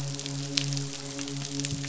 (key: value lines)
label: biophony, midshipman
recorder: SoundTrap 500